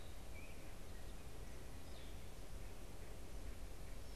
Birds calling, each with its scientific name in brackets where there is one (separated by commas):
unidentified bird